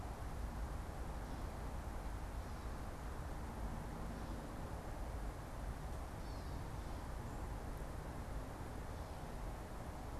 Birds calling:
Gray Catbird (Dumetella carolinensis)

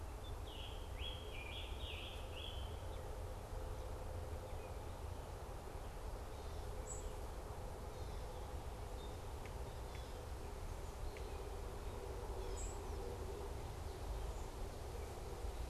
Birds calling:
Scarlet Tanager (Piranga olivacea)
unidentified bird

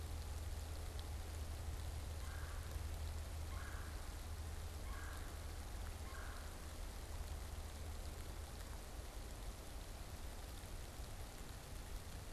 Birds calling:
Red-bellied Woodpecker (Melanerpes carolinus)

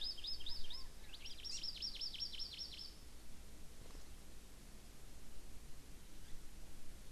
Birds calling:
Hawaii Amakihi (Chlorodrepanis virens)
Chinese Hwamei (Garrulax canorus)

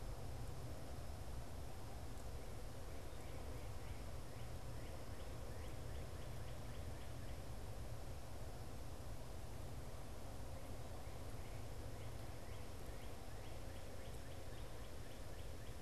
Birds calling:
Northern Cardinal (Cardinalis cardinalis)

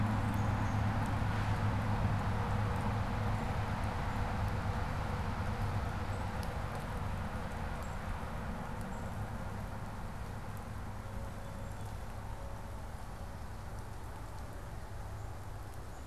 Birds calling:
Black-capped Chickadee (Poecile atricapillus)

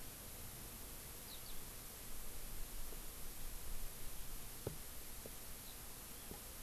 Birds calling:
Eurasian Skylark (Alauda arvensis)

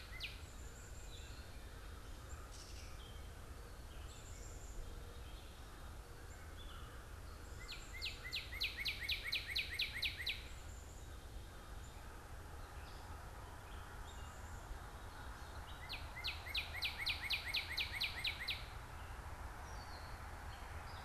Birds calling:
Black-capped Chickadee (Poecile atricapillus)
Northern Cardinal (Cardinalis cardinalis)
American Crow (Corvus brachyrhynchos)
Gray Catbird (Dumetella carolinensis)

